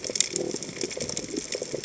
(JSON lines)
{"label": "biophony", "recorder": "HydroMoth"}